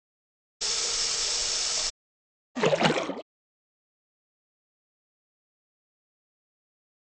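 First, the sound of a water tap is heard. Then splashing can be heard.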